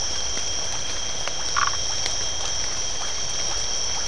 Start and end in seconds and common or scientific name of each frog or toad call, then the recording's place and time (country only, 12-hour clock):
0.7	4.0	Iporanga white-lipped frog
1.5	1.8	Phyllomedusa distincta
Brazil, 7:30pm